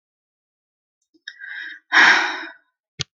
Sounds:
Sigh